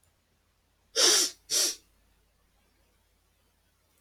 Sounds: Sniff